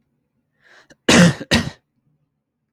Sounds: Cough